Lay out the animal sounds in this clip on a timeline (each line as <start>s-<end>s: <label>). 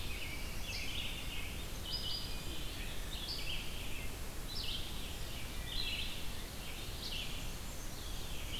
0.0s-8.6s: Red-eyed Vireo (Vireo olivaceus)
7.8s-8.6s: Eastern Wood-Pewee (Contopus virens)